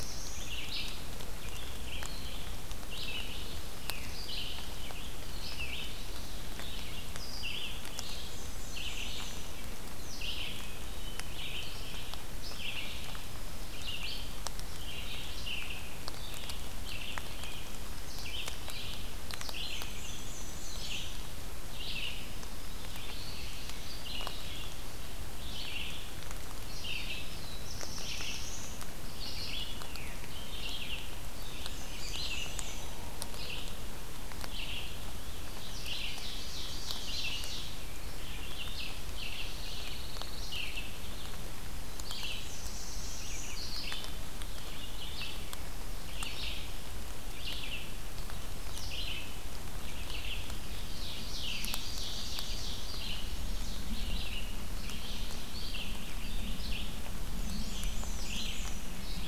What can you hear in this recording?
Black-throated Blue Warbler, Red-eyed Vireo, Black-and-white Warbler, Wood Thrush, Ovenbird, Pine Warbler